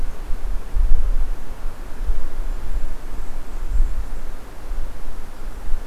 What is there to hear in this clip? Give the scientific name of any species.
Regulus satrapa